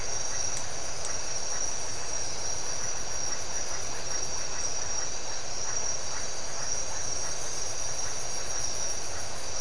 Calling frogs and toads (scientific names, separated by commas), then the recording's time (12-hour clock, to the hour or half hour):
Leptodactylus notoaktites
~4am